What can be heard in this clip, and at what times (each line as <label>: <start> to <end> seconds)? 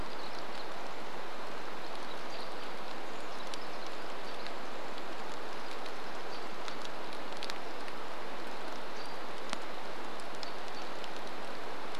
Pacific Wren song: 0 to 8 seconds
American Robin call: 0 to 12 seconds
rain: 0 to 12 seconds
Brown Creeper call: 2 to 4 seconds